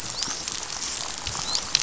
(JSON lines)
{"label": "biophony, dolphin", "recorder": "SoundTrap 500"}